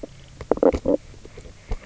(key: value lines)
label: biophony, knock croak
recorder: SoundTrap 300